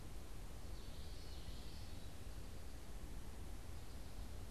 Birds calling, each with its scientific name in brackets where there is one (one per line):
Common Yellowthroat (Geothlypis trichas)